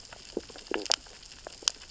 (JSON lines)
{"label": "biophony, stridulation", "recorder": "SoundTrap 600 or HydroMoth"}